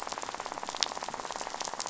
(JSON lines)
{"label": "biophony, rattle", "recorder": "SoundTrap 500"}